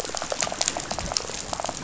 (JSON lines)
{"label": "biophony, rattle", "recorder": "SoundTrap 500"}